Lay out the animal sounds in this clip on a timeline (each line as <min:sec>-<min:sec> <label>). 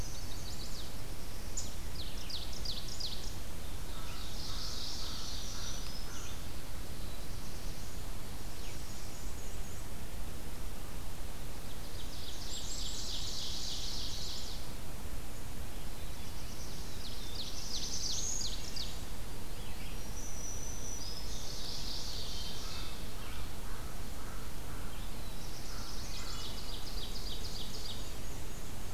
0:00.0-0:01.0 Chestnut-sided Warbler (Setophaga pensylvanica)
0:00.0-0:25.6 Red-eyed Vireo (Vireo olivaceus)
0:01.8-0:03.4 Ovenbird (Seiurus aurocapilla)
0:03.8-0:06.3 American Crow (Corvus brachyrhynchos)
0:03.9-0:06.0 Ovenbird (Seiurus aurocapilla)
0:04.8-0:06.5 Black-throated Green Warbler (Setophaga virens)
0:06.8-0:08.2 Black-throated Blue Warbler (Setophaga caerulescens)
0:08.3-0:09.9 Black-and-white Warbler (Mniotilta varia)
0:11.6-0:14.2 Ovenbird (Seiurus aurocapilla)
0:12.2-0:13.4 Blackburnian Warbler (Setophaga fusca)
0:13.9-0:14.6 Chestnut-sided Warbler (Setophaga pensylvanica)
0:15.8-0:18.6 Black-throated Blue Warbler (Setophaga caerulescens)
0:15.8-0:16.8 Wood Thrush (Hylocichla mustelina)
0:16.9-0:19.0 Ovenbird (Seiurus aurocapilla)
0:19.7-0:21.6 Black-throated Green Warbler (Setophaga virens)
0:21.1-0:23.1 Ovenbird (Seiurus aurocapilla)
0:22.4-0:26.5 American Crow (Corvus brachyrhynchos)
0:24.9-0:26.2 Black-throated Blue Warbler (Setophaga caerulescens)
0:25.7-0:26.6 Chestnut-sided Warbler (Setophaga pensylvanica)
0:26.3-0:28.1 Ovenbird (Seiurus aurocapilla)
0:26.8-0:28.9 Black-and-white Warbler (Mniotilta varia)